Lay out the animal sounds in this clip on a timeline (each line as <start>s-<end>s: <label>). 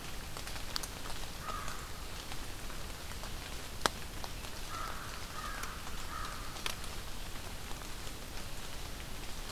1.3s-1.8s: American Crow (Corvus brachyrhynchos)
4.7s-6.7s: American Crow (Corvus brachyrhynchos)